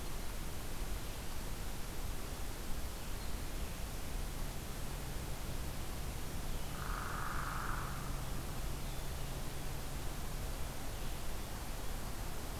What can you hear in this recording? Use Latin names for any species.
Vireo solitarius, Dryobates villosus